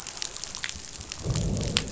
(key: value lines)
label: biophony, growl
recorder: SoundTrap 500